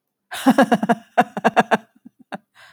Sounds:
Laughter